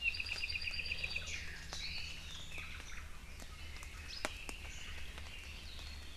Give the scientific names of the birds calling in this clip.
Himatione sanguinea, Loxops coccineus, Myadestes obscurus